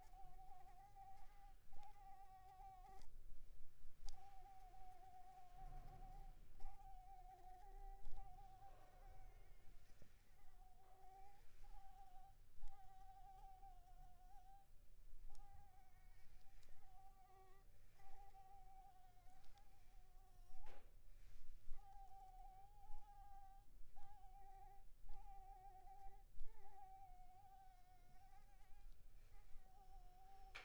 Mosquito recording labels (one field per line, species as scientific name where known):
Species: Anopheles arabiensis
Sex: female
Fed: unfed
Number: one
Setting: cup